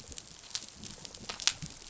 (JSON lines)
{"label": "biophony, rattle response", "recorder": "SoundTrap 500"}